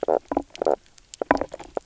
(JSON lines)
{"label": "biophony, knock croak", "recorder": "SoundTrap 300"}